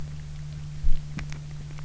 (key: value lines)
label: anthrophony, boat engine
recorder: SoundTrap 300